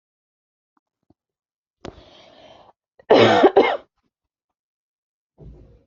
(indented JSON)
{
  "expert_labels": [
    {
      "quality": "ok",
      "cough_type": "unknown",
      "dyspnea": false,
      "wheezing": false,
      "stridor": false,
      "choking": false,
      "congestion": false,
      "nothing": true,
      "diagnosis": "lower respiratory tract infection",
      "severity": "mild"
    }
  ],
  "age": 24,
  "gender": "female",
  "respiratory_condition": false,
  "fever_muscle_pain": false,
  "status": "healthy"
}